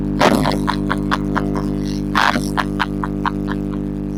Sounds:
Laughter